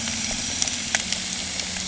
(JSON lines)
{"label": "anthrophony, boat engine", "recorder": "HydroMoth"}